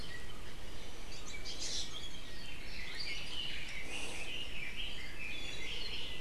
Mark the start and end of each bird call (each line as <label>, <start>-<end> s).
Iiwi (Drepanis coccinea), 1.4-2.0 s
Red-billed Leiothrix (Leiothrix lutea), 2.7-6.2 s
Iiwi (Drepanis coccinea), 5.1-5.8 s